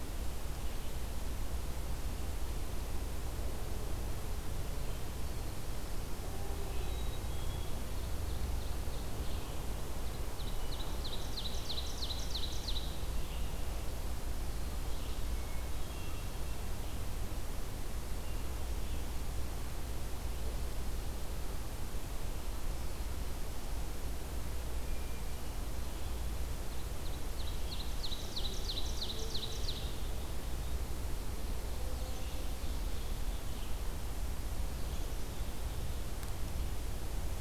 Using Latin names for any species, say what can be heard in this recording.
Poecile atricapillus, Seiurus aurocapilla, Catharus guttatus, Vireo olivaceus